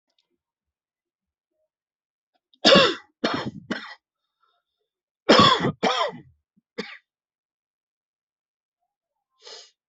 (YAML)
expert_labels:
- quality: ok
  cough_type: unknown
  dyspnea: false
  wheezing: false
  stridor: false
  choking: false
  congestion: true
  nothing: false
  diagnosis: upper respiratory tract infection
  severity: mild
- quality: good
  cough_type: wet
  dyspnea: false
  wheezing: false
  stridor: false
  choking: false
  congestion: true
  nothing: false
  diagnosis: COVID-19
  severity: mild
- quality: good
  cough_type: wet
  dyspnea: false
  wheezing: false
  stridor: false
  choking: false
  congestion: true
  nothing: false
  diagnosis: upper respiratory tract infection
  severity: mild
- quality: good
  cough_type: dry
  dyspnea: false
  wheezing: false
  stridor: false
  choking: false
  congestion: true
  nothing: false
  diagnosis: upper respiratory tract infection
  severity: mild
age: 45
gender: male
respiratory_condition: true
fever_muscle_pain: true
status: COVID-19